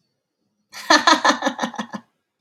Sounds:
Laughter